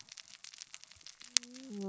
{"label": "biophony, cascading saw", "recorder": "SoundTrap 600 or HydroMoth"}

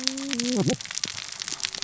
{"label": "biophony, cascading saw", "recorder": "SoundTrap 600 or HydroMoth"}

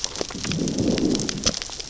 {"label": "biophony, growl", "recorder": "SoundTrap 600 or HydroMoth"}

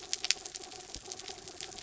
{"label": "anthrophony, mechanical", "recorder": "SoundTrap 300"}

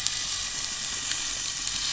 {"label": "anthrophony, boat engine", "recorder": "SoundTrap 500"}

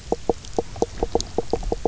{"label": "biophony, knock croak", "recorder": "SoundTrap 300"}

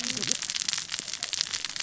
{"label": "biophony, cascading saw", "recorder": "SoundTrap 600 or HydroMoth"}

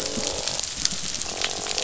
{"label": "biophony", "recorder": "SoundTrap 500"}
{"label": "biophony, croak", "recorder": "SoundTrap 500"}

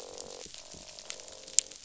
{"label": "biophony, croak", "recorder": "SoundTrap 500"}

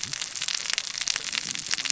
{"label": "biophony, cascading saw", "recorder": "SoundTrap 600 or HydroMoth"}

